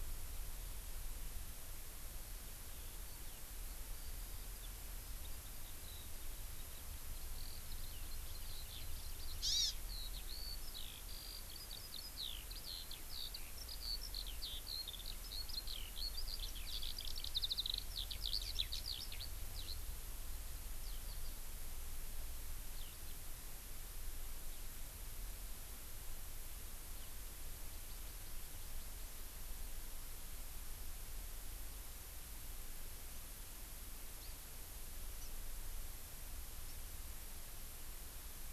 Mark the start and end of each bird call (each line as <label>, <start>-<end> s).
Eurasian Skylark (Alauda arvensis), 2.4-19.7 s
Hawaii Amakihi (Chlorodrepanis virens), 9.4-9.7 s
Eurasian Skylark (Alauda arvensis), 20.8-21.3 s
Eurasian Skylark (Alauda arvensis), 22.7-23.1 s
Hawaii Amakihi (Chlorodrepanis virens), 27.7-29.1 s
Hawaii Amakihi (Chlorodrepanis virens), 34.2-34.3 s
Hawaii Amakihi (Chlorodrepanis virens), 35.2-35.3 s